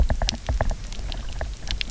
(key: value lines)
label: biophony, knock
recorder: SoundTrap 300